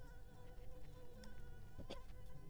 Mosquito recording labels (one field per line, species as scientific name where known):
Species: Anopheles arabiensis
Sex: female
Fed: unfed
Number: one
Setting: cup